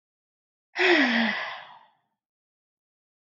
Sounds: Sigh